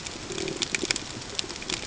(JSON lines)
{"label": "ambient", "recorder": "HydroMoth"}